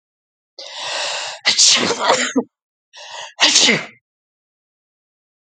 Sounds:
Sneeze